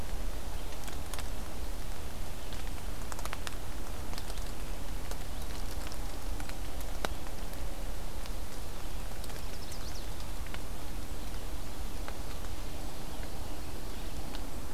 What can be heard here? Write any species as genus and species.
Vireo olivaceus, Setophaga pensylvanica